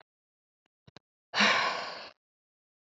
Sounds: Sigh